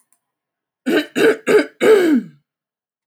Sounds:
Throat clearing